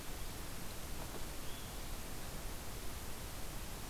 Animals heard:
forest ambience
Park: Katahdin Woods and Waters National Monument